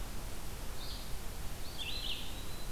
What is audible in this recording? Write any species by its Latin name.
Vireo olivaceus, Contopus virens